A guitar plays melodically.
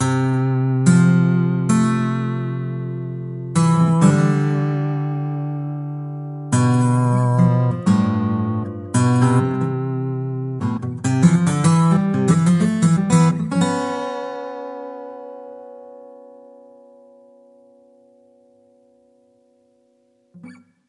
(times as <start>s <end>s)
0.0s 16.1s